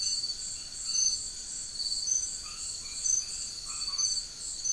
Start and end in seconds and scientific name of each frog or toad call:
2.1	4.7	Boana albomarginata